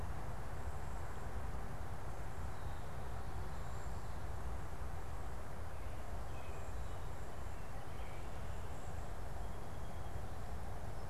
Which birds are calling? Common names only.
American Robin